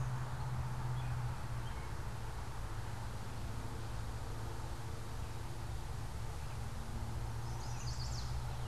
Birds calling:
Chestnut-sided Warbler (Setophaga pensylvanica), American Robin (Turdus migratorius)

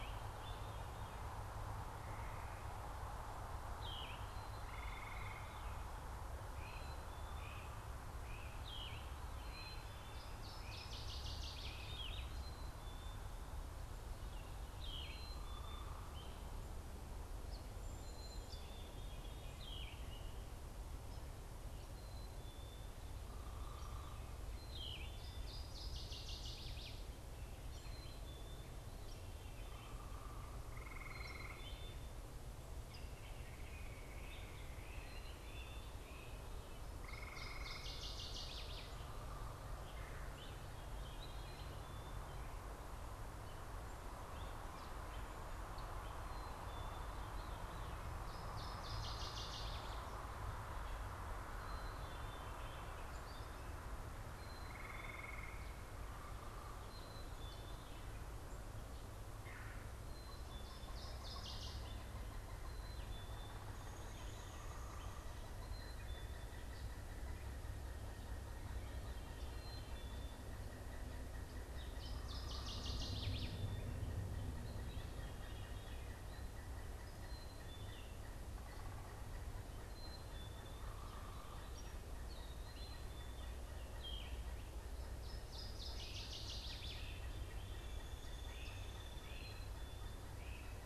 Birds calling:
Yellow-throated Vireo (Vireo flavifrons), Black-capped Chickadee (Poecile atricapillus), unidentified bird, Downy Woodpecker (Dryobates pubescens), Veery (Catharus fuscescens), Pileated Woodpecker (Dryocopus pileatus), Gray Catbird (Dumetella carolinensis), Northern Waterthrush (Parkesia noveboracensis), Cedar Waxwing (Bombycilla cedrorum), Great Crested Flycatcher (Myiarchus crinitus)

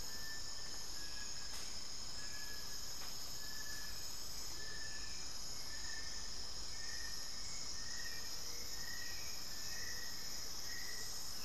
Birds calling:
Little Tinamou (Crypturellus soui), Hauxwell's Thrush (Turdus hauxwelli), Amazonian Motmot (Momotus momota), unidentified bird

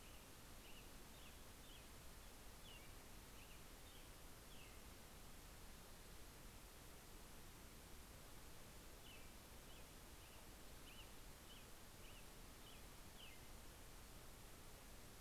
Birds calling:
Pacific-slope Flycatcher (Empidonax difficilis), American Robin (Turdus migratorius)

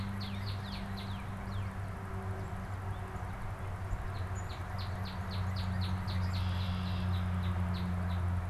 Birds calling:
Red-winged Blackbird (Agelaius phoeniceus), Northern Cardinal (Cardinalis cardinalis)

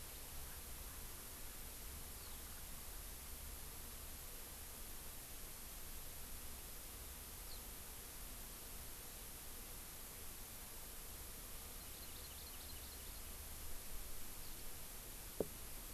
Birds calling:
Eurasian Skylark (Alauda arvensis), Hawaii Amakihi (Chlorodrepanis virens)

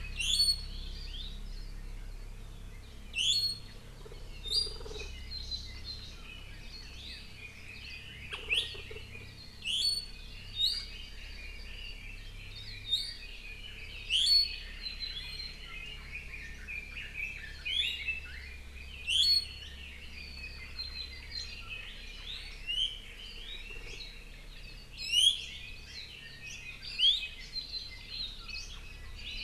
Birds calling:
Hawaii Amakihi (Chlorodrepanis virens), Red-billed Leiothrix (Leiothrix lutea), Iiwi (Drepanis coccinea)

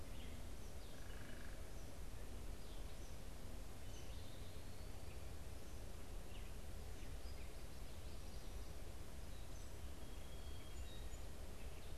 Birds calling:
Song Sparrow (Melospiza melodia), Gray Catbird (Dumetella carolinensis), unidentified bird

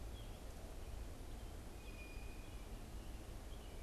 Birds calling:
American Robin (Turdus migratorius), Blue Jay (Cyanocitta cristata)

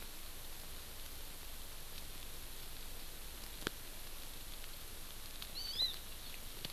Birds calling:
Hawaii Amakihi (Chlorodrepanis virens)

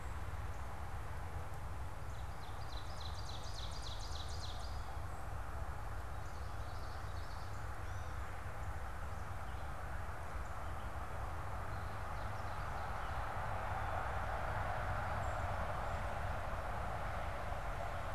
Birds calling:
Northern Cardinal (Cardinalis cardinalis), Ovenbird (Seiurus aurocapilla), Common Yellowthroat (Geothlypis trichas)

